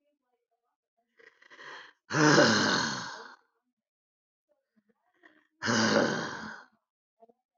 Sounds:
Sigh